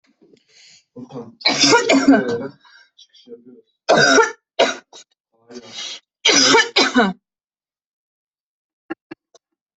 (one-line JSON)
{"expert_labels": [{"quality": "ok", "cough_type": "dry", "dyspnea": false, "wheezing": false, "stridor": false, "choking": false, "congestion": false, "nothing": true, "diagnosis": "COVID-19", "severity": "mild"}], "age": 22, "gender": "female", "respiratory_condition": false, "fever_muscle_pain": true, "status": "symptomatic"}